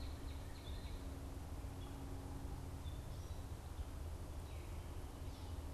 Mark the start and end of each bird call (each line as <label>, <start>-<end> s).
Northern Cardinal (Cardinalis cardinalis), 0.0-1.2 s
Gray Catbird (Dumetella carolinensis), 0.4-5.6 s